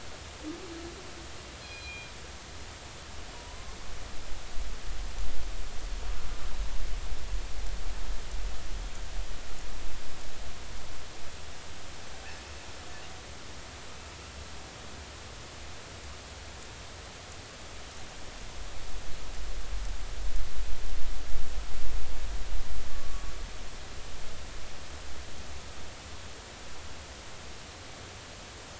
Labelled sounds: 1.6	2.1	killer whale, northern resident, G clan, call N24ii, 2.3 to 5.0 kHz
3.3	3.8	killer whale, northern resident, 0.90 to 1.1 kHz
22.9	23.3	killer whale, northern resident, 1.1 to 1.2 kHz

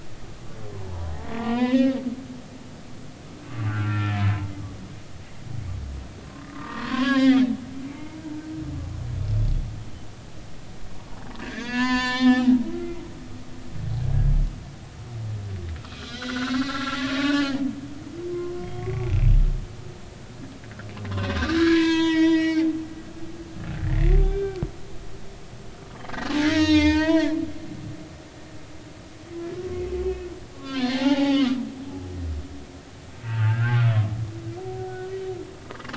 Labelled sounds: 0.0	2.0	humpback whale, 0.80 to 3.8 kHz
3.5	4.2	humpback whale, 1.1 to 2.6 kHz
6.4	7.4	humpback whale, 0.80 to 5.1 kHz
7.8	8.2	humpback whale, 0.83 to 0.99 kHz
11.4	13.0	humpback whale, 0.80 to 7.2 kHz
16.0	17.6	humpback whale, 0.99 to 4.2 kHz
18.3	19.2	humpback whale, 0.99 to 2.4 kHz
21.1	22.7	humpback whale, 0.90 to 7.9 kHz
23.8	24.6	humpback whale, 1.5 to 2.4 kHz
26.4	27.3	humpback whale, 0.86 to 8.0 kHz
30.0	30.3	humpback whale, 2.5 to 2.7 kHz
30.5	31.6	humpback whale, 0.80 to 4.4 kHz
33.2	33.9	humpback whale, 0.83 to 3.0 kHz

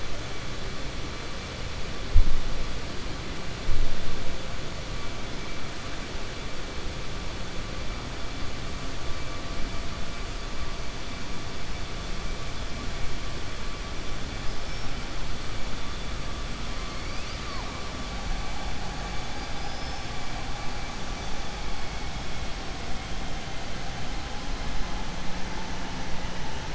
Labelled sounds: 14.4	14.9	killer whale, 4.9 to 5.6 kHz
19.3	20.1	killer whale, 4.7 to 5.7 kHz

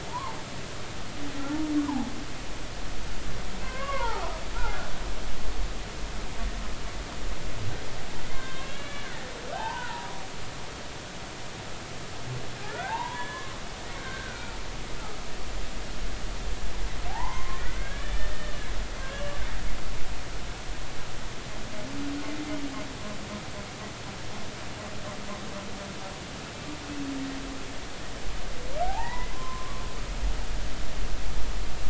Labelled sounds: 0.1	0.4	humpback whale, 0.80 to 1.2 kHz
1.4	2.1	humpback whale, 0.80 to 1.2 kHz
3.6	4.9	humpback whale, 0.80 to 1.7 kHz
8.2	10.2	humpback whale, 0.80 to 3.8 kHz
12.7	13.5	humpback whale, 0.80 to 3.5 kHz
14.0	14.6	humpback whale, 1.2 to 2.5 kHz
17.1	18.5	humpback whale, 0.80 to 3.0 kHz
19.1	19.4	humpback whale, 2.7 to 2.9 kHz
28.8	29.8	humpback whale, 0.80 to 2.1 kHz

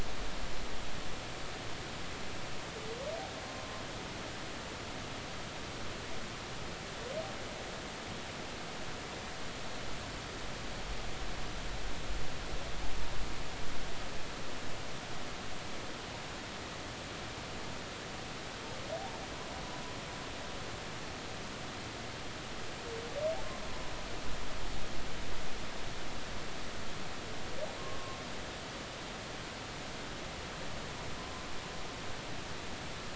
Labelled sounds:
27.8	28.2	humpback whale, 1.0 to 1.1 kHz
31.2	31.5	humpback whale, 0.99 to 1.2 kHz

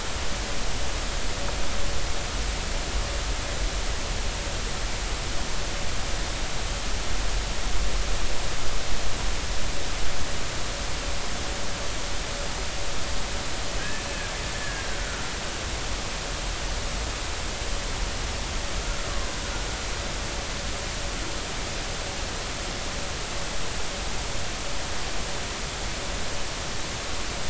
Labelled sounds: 13.8	14.0	killer whale, Bigg's (transient), 1.5 to 1.8 kHz
14.6	15.3	killer whale, Bigg's (transient), 1.3 to 1.8 kHz

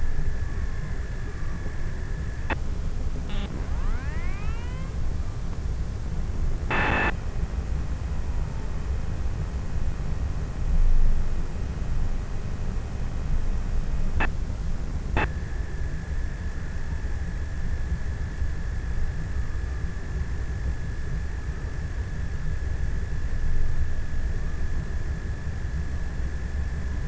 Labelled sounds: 1.6	8.0	abiotic sound, 0 to 7.6 kHz

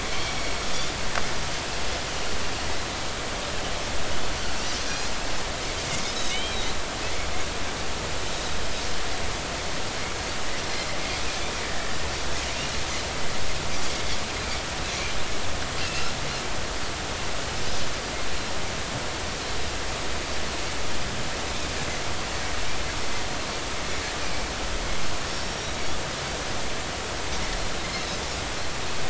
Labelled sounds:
0.0	0.4	Pacific white-sided dolphin, 2.2 to 2.4 kHz
6.0	6.6	Pacific white-sided dolphin, 2.1 to 5.3 kHz
15.8	16.1	Pacific white-sided dolphin, 2.5 to 2.9 kHz
25.3	25.8	Pacific white-sided dolphin, 5.4 to 5.8 kHz
27.8	28.1	Pacific white-sided dolphin, 4.0 to 4.4 kHz

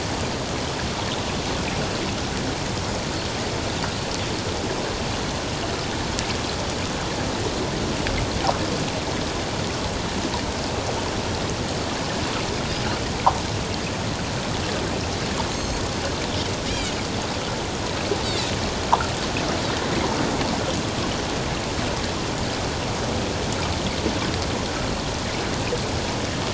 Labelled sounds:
15.5	15.8	Pacific white-sided dolphin, 4.2 to 6.6 kHz
16.7	16.9	Pacific white-sided dolphin, 2.8 to 3.3 kHz

